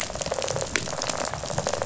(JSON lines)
{"label": "biophony, rattle response", "recorder": "SoundTrap 500"}